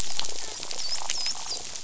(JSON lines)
{"label": "biophony, dolphin", "recorder": "SoundTrap 500"}